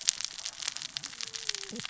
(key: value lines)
label: biophony, cascading saw
recorder: SoundTrap 600 or HydroMoth